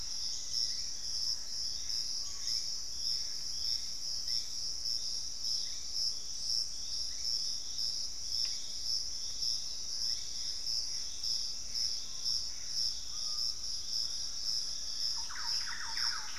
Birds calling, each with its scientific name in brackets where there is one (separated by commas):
Cinnamon-rumped Foliage-gleaner (Philydor pyrrhodes), unidentified bird, Thrush-like Wren (Campylorhynchus turdinus), Gray Antbird (Cercomacra cinerascens), Screaming Piha (Lipaugus vociferans), White-throated Woodpecker (Piculus leucolaemus)